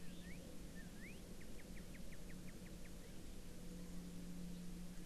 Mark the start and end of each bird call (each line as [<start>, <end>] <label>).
[0.23, 3.13] Northern Cardinal (Cardinalis cardinalis)